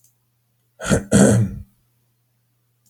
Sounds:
Throat clearing